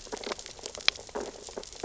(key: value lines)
label: biophony, sea urchins (Echinidae)
recorder: SoundTrap 600 or HydroMoth